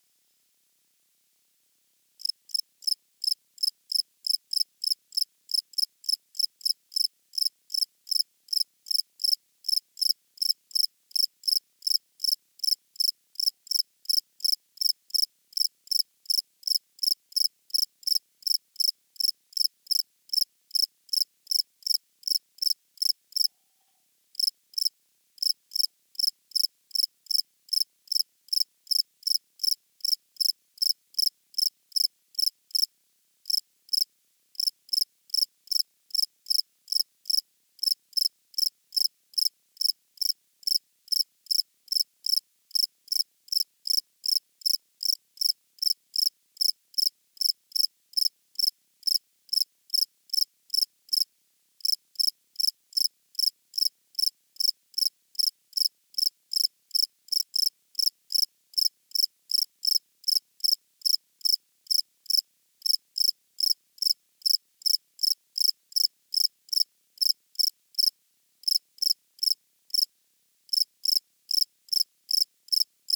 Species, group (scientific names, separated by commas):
Gryllus campestris, Orthoptera